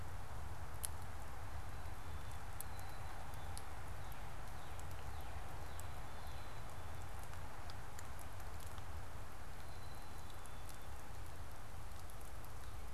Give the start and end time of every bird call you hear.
[1.50, 3.50] Black-capped Chickadee (Poecile atricapillus)
[3.30, 6.60] Northern Cardinal (Cardinalis cardinalis)
[6.00, 7.30] Black-capped Chickadee (Poecile atricapillus)
[9.50, 11.10] Black-capped Chickadee (Poecile atricapillus)

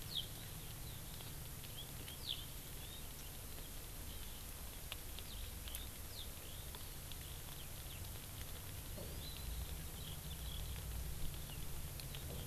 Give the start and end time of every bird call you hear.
[0.03, 0.23] Eurasian Skylark (Alauda arvensis)
[2.13, 2.33] Eurasian Skylark (Alauda arvensis)
[8.93, 9.43] Hawaii Amakihi (Chlorodrepanis virens)

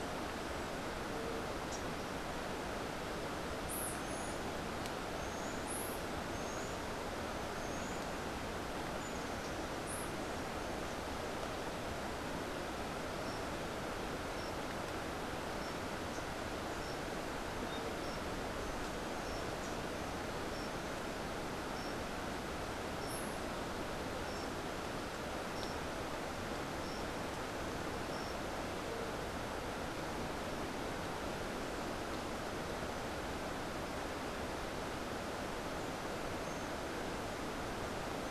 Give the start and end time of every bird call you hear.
[3.48, 5.97] White-eared Ground-Sparrow (Melozone leucotis)
[3.88, 9.57] Buff-throated Saltator (Saltator maximus)

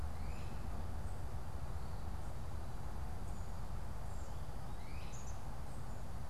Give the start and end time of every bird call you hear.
[0.00, 6.30] Great Crested Flycatcher (Myiarchus crinitus)
[3.90, 6.30] Black-capped Chickadee (Poecile atricapillus)

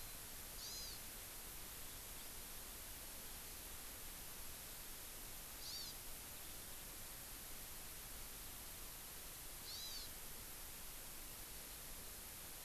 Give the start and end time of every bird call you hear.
[0.00, 0.20] Warbling White-eye (Zosterops japonicus)
[0.60, 1.00] Hawaii Amakihi (Chlorodrepanis virens)
[5.60, 5.90] Hawaii Amakihi (Chlorodrepanis virens)
[9.70, 10.10] Hawaii Amakihi (Chlorodrepanis virens)

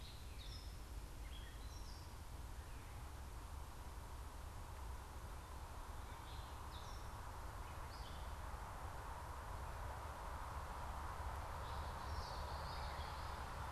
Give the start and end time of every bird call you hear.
[0.00, 2.60] Gray Catbird (Dumetella carolinensis)
[5.60, 8.40] Gray Catbird (Dumetella carolinensis)
[11.80, 13.60] Common Yellowthroat (Geothlypis trichas)

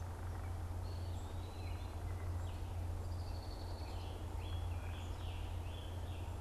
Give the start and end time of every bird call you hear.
[0.65, 1.95] Eastern Wood-Pewee (Contopus virens)
[2.75, 4.25] Red-winged Blackbird (Agelaius phoeniceus)
[4.15, 6.35] Scarlet Tanager (Piranga olivacea)

